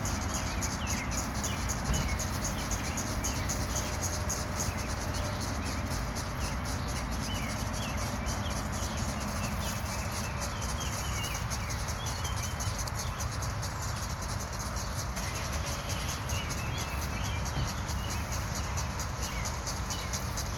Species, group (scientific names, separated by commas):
Magicicada septendecula, Cicadidae